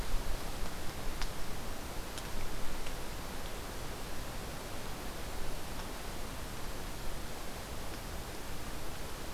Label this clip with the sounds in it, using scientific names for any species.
forest ambience